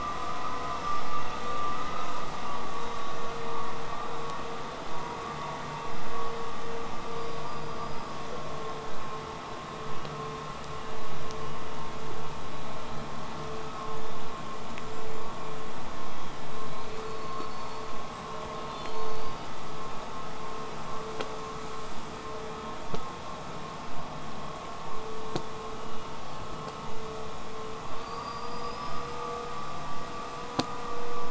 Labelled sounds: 7.0	8.2	killer whale, southern resident, 4.6 to 8.0 kHz
16.5	18.2	killer whale, southern resident, whistle, 3.7 to 8.0 kHz
18.5	19.5	killer whale, southern resident, whistle, 2.9 to 8.0 kHz
21.0	22.2	killer whale, southern resident, whistle, 7.8 to 8.0 kHz
27.9	29.3	killer whale, southern resident, L pod, call S19, 0.32 to 8.0 kHz

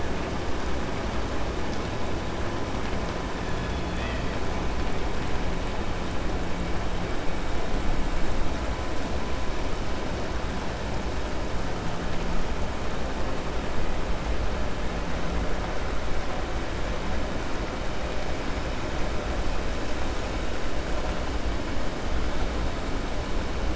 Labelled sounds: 3.5	4.3	killer whale, 1.3 to 4.3 kHz

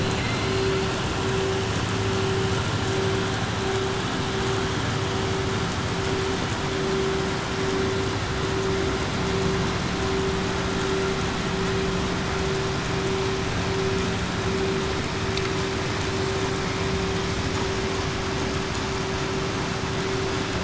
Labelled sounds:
0.0	0.7	killer whale, southern resident, 2.0 to 4.7 kHz

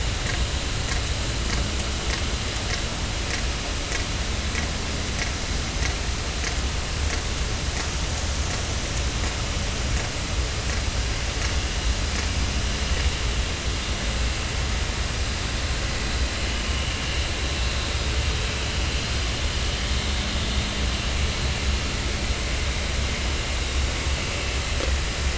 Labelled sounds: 16.6	16.9	vessel noise, 2.8 to 3.1 kHz

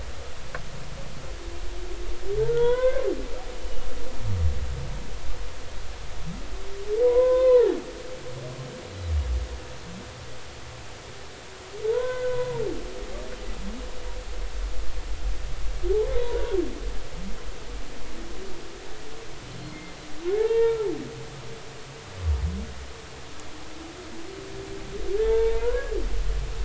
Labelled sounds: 2.5	3.1	humpback whale, 0.86 to 3.7 kHz
7.0	7.8	humpback whale, 0.80 to 3.7 kHz
11.8	12.6	humpback whale, 0.83 to 1.6 kHz
16.2	16.5	humpback whale, 0.90 to 1.1 kHz
19.6	20.9	humpback whale, 0.83 to 2.3 kHz
25.2	25.9	humpback whale, 0.83 to 1.2 kHz

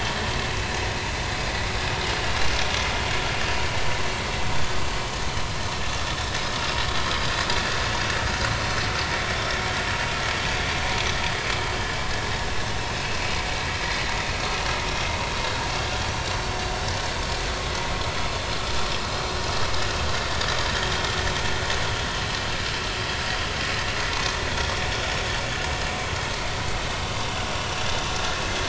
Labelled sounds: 9.3	9.6	vessel noise, 5.3 to 5.6 kHz
24.6	24.9	vessel noise, 5.4 to 5.6 kHz

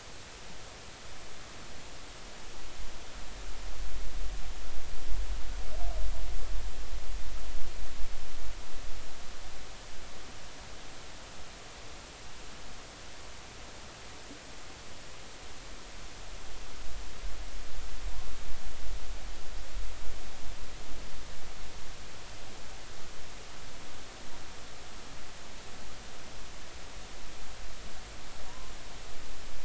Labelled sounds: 28.5	28.7	humpback whale, 0.93 to 1.1 kHz

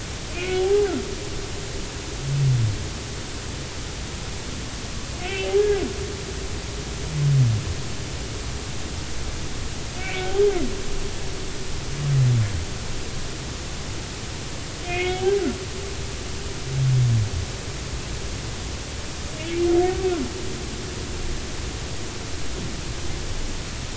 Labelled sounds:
0.3	0.9	humpback whale, 0.80 to 2.7 kHz
5.2	5.8	humpback whale, 1.5 to 3.2 kHz
10.0	10.4	humpback whale, 1.4 to 2.4 kHz
14.8	15.4	humpback whale, 0.80 to 3.4 kHz

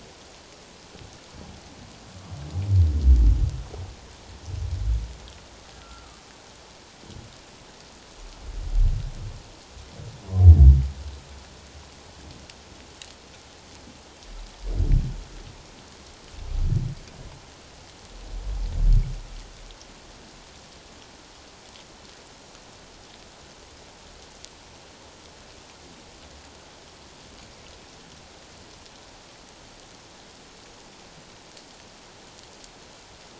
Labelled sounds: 5.8	6.2	humpback whale, 1.1 to 1.5 kHz

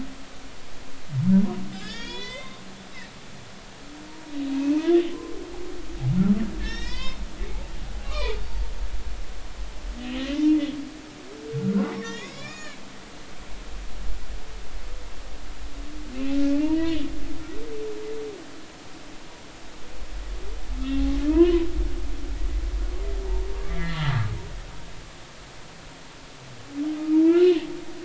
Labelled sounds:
1.7	2.6	humpback whale, 0.90 to 5.8 kHz
4.5	5.4	humpback whale, 0.99 to 2.7 kHz
6.6	7.2	humpback whale, 0.93 to 6.8 kHz
8.0	8.4	humpback whale, 0.86 to 3.7 kHz
10.2	10.6	humpback whale, 0.86 to 2.1 kHz
11.6	12.8	humpback whale, 1.3 to 7.0 kHz
16.1	17.0	humpback whale, 0.86 to 3.0 kHz
21.3	21.7	humpback whale, 0.90 to 3.0 kHz
23.7	24.1	humpback whale, 1.7 to 2.1 kHz
27.2	27.7	humpback whale, 1.3 to 3.0 kHz

